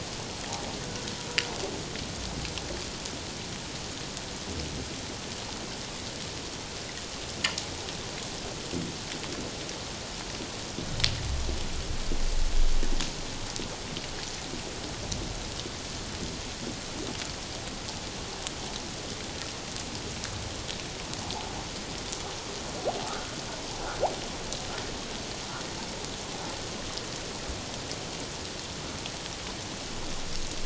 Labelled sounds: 23.1	23.3	humpback whale, 1.2 to 1.6 kHz

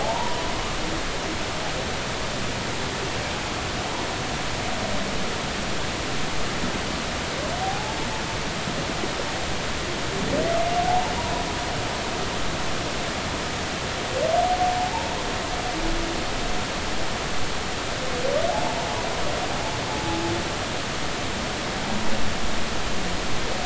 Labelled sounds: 0.0	0.4	humpback whale, 0.80 to 1.0 kHz
7.6	8.0	humpback whale, 0.80 to 0.93 kHz
10.8	11.1	humpback whale, 0.80 to 1.0 kHz
14.8	15.1	humpback whale, 0.80 to 0.99 kHz
18.5	18.8	humpback whale, 0.80 to 0.96 kHz
19.9	20.2	humpback whale, 0.80 to 0.90 kHz

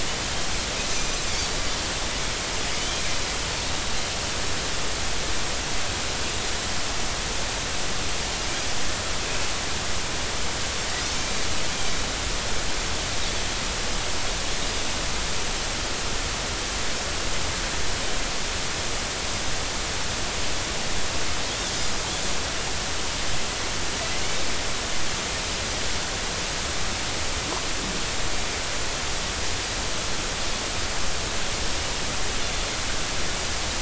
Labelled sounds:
0.9	1.2	Pacific white-sided dolphin, 5.9 to 6.2 kHz

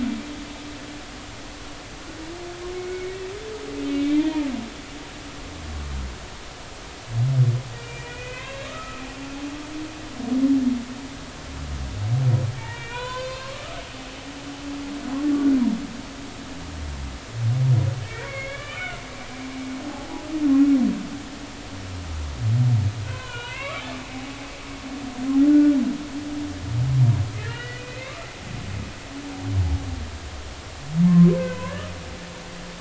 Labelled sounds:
2.7	3.3	humpback whale, 1.8 to 2.3 kHz
3.9	4.5	humpback whale, 0.83 to 2.6 kHz
7.8	9.0	humpback whale, 0.96 to 3.4 kHz
12.5	13.8	humpback whale, 0.86 to 4.9 kHz
18.0	19.0	humpback whale, 1.1 to 3.5 kHz
19.8	20.2	humpback whale, 0.80 to 1.0 kHz
23.0	23.9	humpback whale, 0.90 to 3.2 kHz
25.5	25.8	humpback whale, 1.4 to 1.6 kHz
27.4	28.3	humpback whale, 1.0 to 3.0 kHz
31.4	31.9	humpback whale, 0.96 to 2.8 kHz

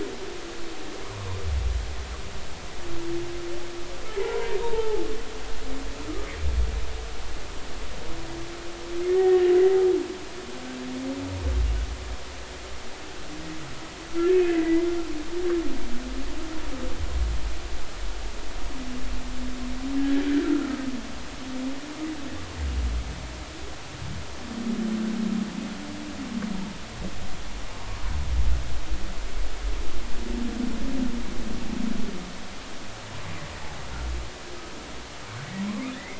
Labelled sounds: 4.6	5.6	humpback whale, 0.80 to 1.0 kHz
9.2	9.5	humpback whale, 1.8 to 2.0 kHz
14.3	14.9	humpback whale, 1.9 to 2.7 kHz
20.3	20.5	humpback whale, 1.5 to 1.6 kHz
35.9	36.1	humpback whale, 1.7 to 2.3 kHz

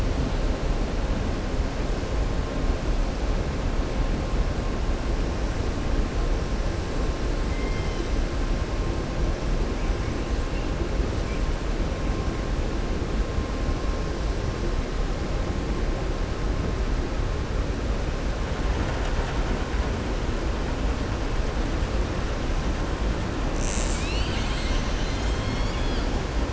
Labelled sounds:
7.5	8.1	killer whale, southern resident, 2.0 to 4.8 kHz

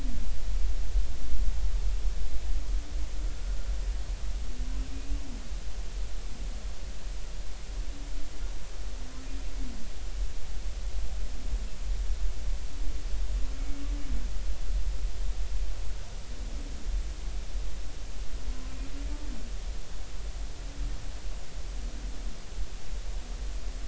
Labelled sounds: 4.9	5.1	humpback whale, 2.4 to 2.6 kHz

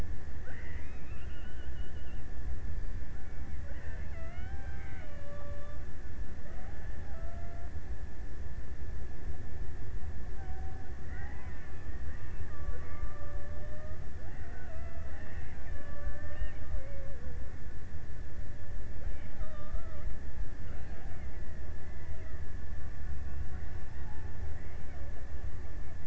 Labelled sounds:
0.0	2.7	killer whale, Bigg's (transient), 0.94 to 3.3 kHz
3.5	6.0	killer whale, Bigg's (transient), 0.40 to 3.4 kHz
6.8	8.2	killer whale, Bigg's (transient), 0.37 to 1.8 kHz
11.1	12.0	killer whale, Bigg's (transient), 0.28 to 2.3 kHz
12.5	14.7	killer whale, Bigg's (transient), 0.21 to 2.4 kHz
15.5	17.6	killer whale, Bigg's (transient), 0.18 to 2.3 kHz

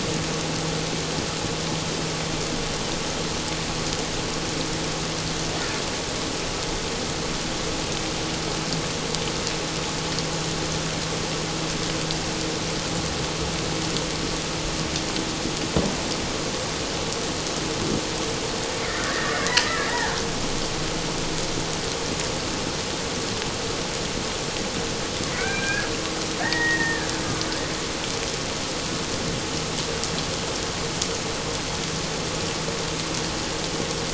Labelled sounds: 19.0	20.1	killer whale, Bigg's (transient), 1.4 to 2.0 kHz
25.3	25.9	killer whale, Bigg's (transient), call T01, 1.4 to 2.5 kHz
26.4	27.1	killer whale, Bigg's (transient), call T02, 1.6 to 2.0 kHz

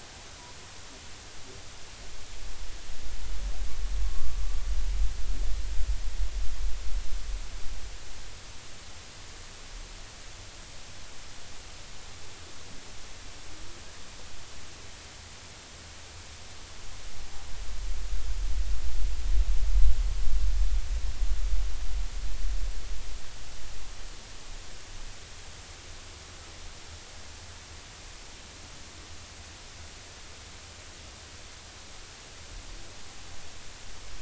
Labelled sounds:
4.0	4.4	humpback whale, 1.1 to 1.2 kHz

